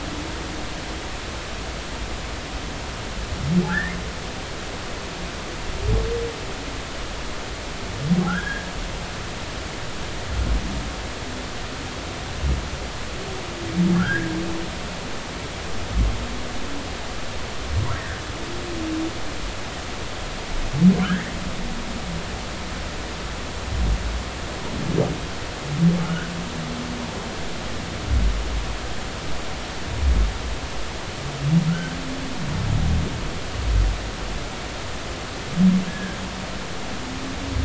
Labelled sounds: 3.7	3.9	humpback whale, 1.3 to 2.0 kHz
8.3	9.6	humpback whale, 1.2 to 3.4 kHz
13.9	14.3	humpback whale, 1.3 to 2.0 kHz
26.0	26.3	humpback whale, 1.2 to 1.6 kHz
31.7	32.0	humpback whale, 1.3 to 1.6 kHz
35.9	36.2	humpback whale, 1.5 to 1.8 kHz

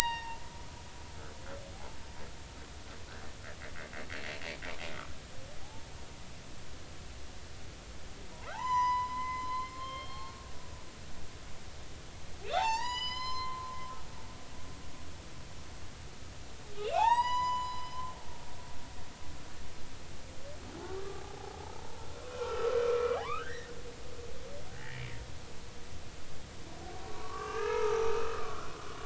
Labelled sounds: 1.0	1.4	humpback whale, 0.86 to 4.8 kHz
5.6	5.9	humpback whale, 0.80 to 0.96 kHz
8.3	10.4	humpback whale, 0.80 to 6.1 kHz
12.5	13.8	humpback whale, 0.80 to 7.2 kHz
16.7	18.0	humpback whale, 0.80 to 7.9 kHz
21.1	21.5	humpback whale, 0.80 to 0.90 kHz
22.3	23.7	humpback whale, 0.93 to 2.7 kHz
24.7	25.0	humpback whale, 0.80 to 2.0 kHz
27.1	28.6	humpback whale, 0.83 to 2.8 kHz

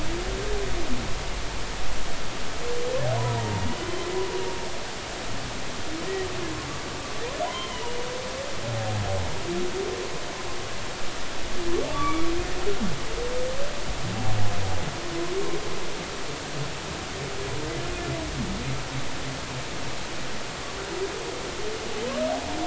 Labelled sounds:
3.2	3.6	humpback whale, 0.86 to 1.0 kHz
7.5	8.0	humpback whale, 0.93 to 3.2 kHz
11.9	12.3	humpback whale, 1.1 to 2.4 kHz

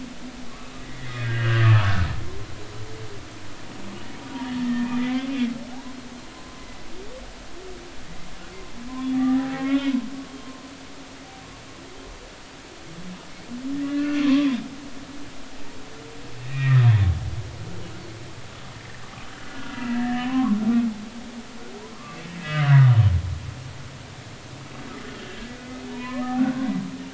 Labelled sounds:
0.5	1.7	humpback whale, 1.0 to 3.0 kHz
4.6	5.3	humpback whale, 1.7 to 3.2 kHz
9.1	10.1	humpback whale, 0.80 to 2.6 kHz
13.7	14.5	humpback whale, 0.99 to 5.8 kHz
16.4	17.1	humpback whale, 1.8 to 3.7 kHz
19.4	20.6	humpback whale, 0.80 to 2.0 kHz
21.9	22.8	humpback whale, 1.0 to 2.9 kHz
25.2	26.7	humpback whale, 0.80 to 3.0 kHz

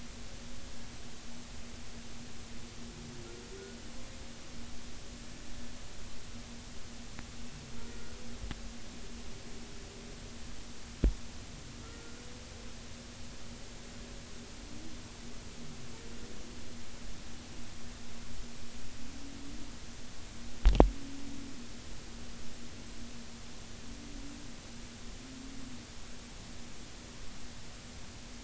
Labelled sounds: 11.8	12.2	humpback whale, 1.3 to 1.5 kHz

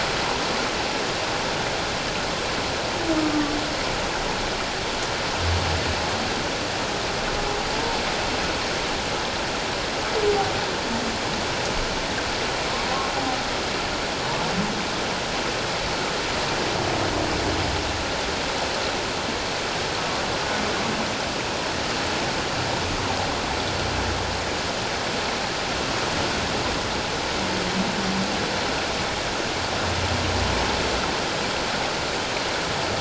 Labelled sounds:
3.2	3.6	humpback whale, 1.1 to 1.2 kHz

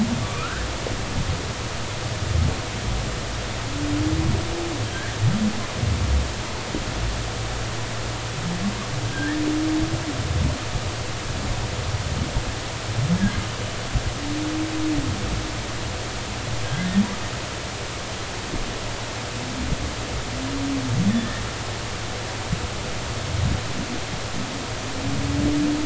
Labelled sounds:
0.2	0.7	humpback whale, 1.1 to 1.8 kHz
4.9	5.1	humpback whale, 1.5 to 1.9 kHz
9.1	9.4	humpback whale, 1.5 to 2.0 kHz
16.6	16.9	humpback whale, 1.6 to 1.7 kHz
21.1	21.4	humpback whale, 1.7 to 1.9 kHz

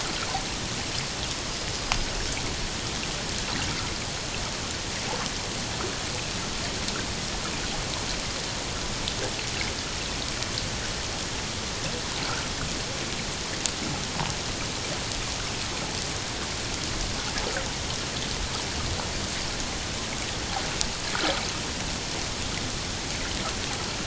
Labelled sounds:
1.5	1.9	killer whale, Bigg's (transient), 4.8 to 5.1 kHz
12.2	12.5	water noise, 1.2 to 1.6 kHz

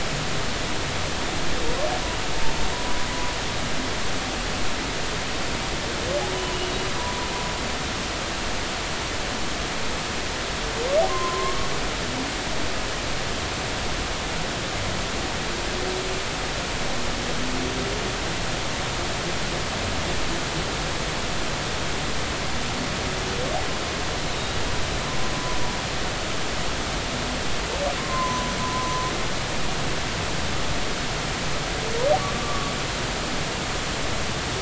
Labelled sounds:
2.7	3.0	humpback whale, 0.96 to 1.0 kHz
6.3	6.6	humpback whale, 0.90 to 1.0 kHz
11.1	11.6	humpback whale, 0.99 to 1.1 kHz
24.3	24.6	humpback whale, 3.7 to 3.9 kHz
28.0	29.0	humpback whale, 0.96 to 1.1 kHz
32.3	32.7	humpback whale, 1.1 to 1.2 kHz

